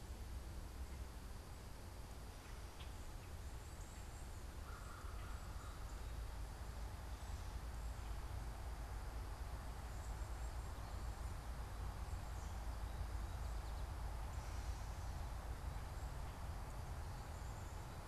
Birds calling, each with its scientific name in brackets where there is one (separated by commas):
American Crow (Corvus brachyrhynchos)